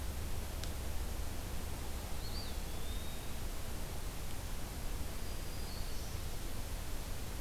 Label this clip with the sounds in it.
Eastern Wood-Pewee, Black-throated Green Warbler